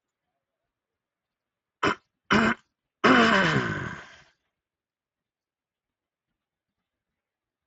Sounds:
Throat clearing